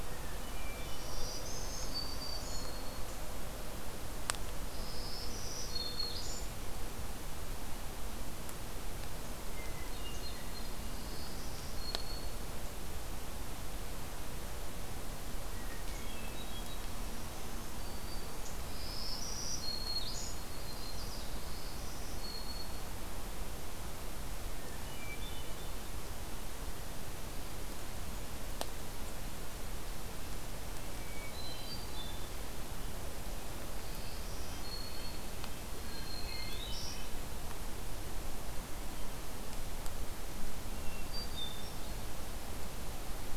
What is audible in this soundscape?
Hermit Thrush, Black-throated Green Warbler, Yellow-rumped Warbler, Red-breasted Nuthatch